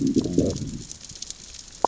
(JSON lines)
{"label": "biophony, growl", "recorder": "SoundTrap 600 or HydroMoth"}